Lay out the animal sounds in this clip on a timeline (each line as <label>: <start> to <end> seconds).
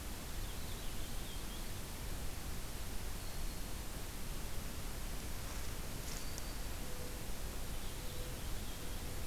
Purple Finch (Haemorhous purpureus): 0.2 to 1.7 seconds
Black-throated Green Warbler (Setophaga virens): 3.0 to 3.9 seconds
Black-throated Green Warbler (Setophaga virens): 6.0 to 6.6 seconds
Mourning Dove (Zenaida macroura): 6.7 to 9.3 seconds
Purple Finch (Haemorhous purpureus): 7.5 to 9.1 seconds